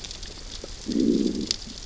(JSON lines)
{"label": "biophony, growl", "recorder": "SoundTrap 600 or HydroMoth"}